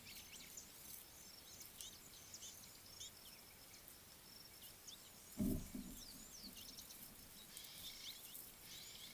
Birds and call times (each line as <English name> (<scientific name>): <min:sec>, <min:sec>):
Rattling Cisticola (Cisticola chiniana): 0:06.8
Ring-necked Dove (Streptopelia capicola): 0:07.9